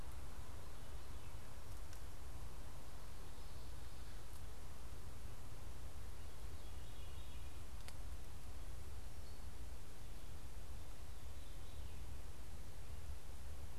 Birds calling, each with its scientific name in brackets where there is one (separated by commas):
Veery (Catharus fuscescens)